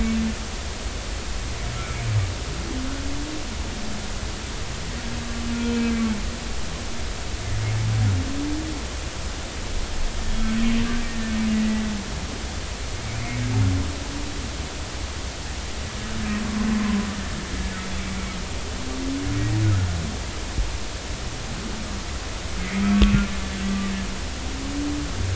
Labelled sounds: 5.7	5.9	humpback whale, 2.5 to 2.6 kHz
11.5	11.8	humpback whale, 1.9 to 2.0 kHz
13.2	13.5	humpback whale, 2.0 to 2.5 kHz
22.9	23.1	humpback whale, 1.1 to 1.2 kHz

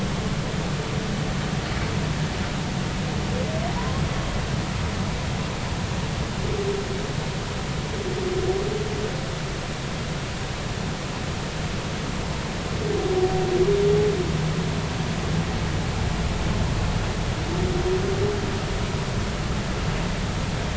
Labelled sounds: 3.8	4.0	humpback whale, 0.93 to 1.1 kHz

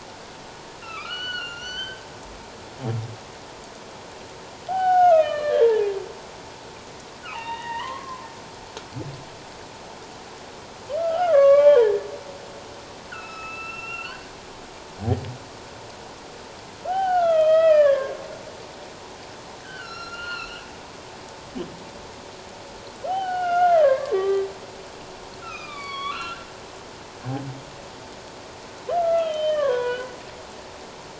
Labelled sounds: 0.8	2.1	humpback whale, 1.1 to 6.3 kHz
4.7	5.9	humpback whale, 0.78 to 3.3 kHz
7.2	8.3	humpback whale, 0.81 to 3.8 kHz
11.0	11.9	humpback whale, 0.84 to 3.5 kHz
13.1	14.2	humpback whale, 1.2 to 5.5 kHz
16.9	18.2	humpback whale, 0.78 to 3.5 kHz
19.6	20.7	humpback whale, 1.2 to 5.7 kHz
23.1	24.4	humpback whale, 0.78 to 3.2 kHz
25.4	26.5	humpback whale, 0.97 to 4.7 kHz
28.9	30.1	humpback whale, 0.94 to 3.4 kHz

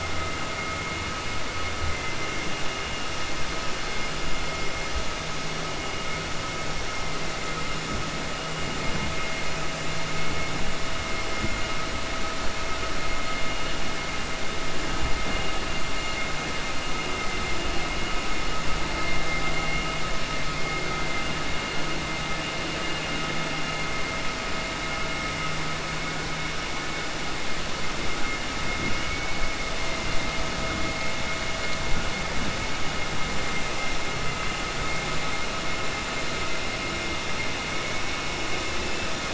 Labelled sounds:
28.9	29.3	vessel noise, 1.5 to 3.0 kHz

